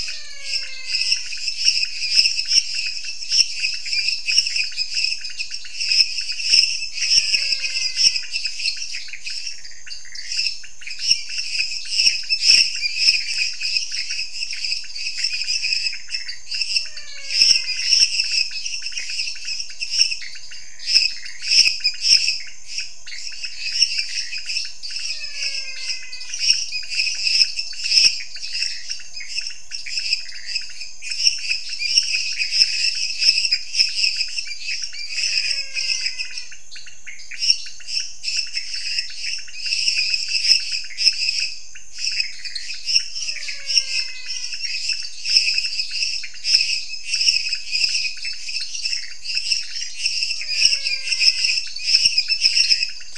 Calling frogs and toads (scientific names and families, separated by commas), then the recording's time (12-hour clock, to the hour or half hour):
Dendropsophus minutus (Hylidae), Dendropsophus nanus (Hylidae), Leptodactylus podicipinus (Leptodactylidae), Physalaemus albonotatus (Leptodactylidae)
10pm